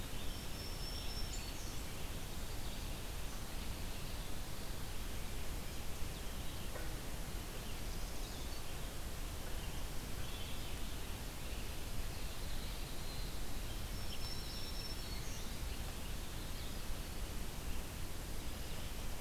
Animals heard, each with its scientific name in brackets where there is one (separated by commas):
Red-eyed Vireo (Vireo olivaceus), Northern Parula (Setophaga americana), Black-throated Green Warbler (Setophaga virens), Winter Wren (Troglodytes hiemalis)